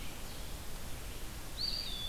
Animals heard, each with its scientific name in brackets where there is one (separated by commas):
Red-eyed Vireo (Vireo olivaceus), Eastern Wood-Pewee (Contopus virens)